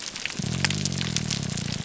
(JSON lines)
{"label": "biophony", "recorder": "SoundTrap 300"}